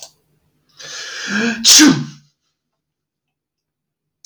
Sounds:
Sneeze